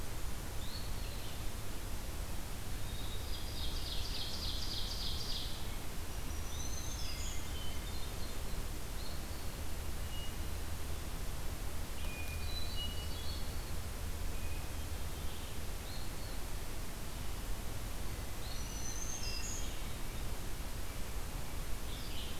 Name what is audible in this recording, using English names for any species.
Red-eyed Vireo, Eastern Wood-Pewee, Hermit Thrush, Ovenbird, Black-throated Green Warbler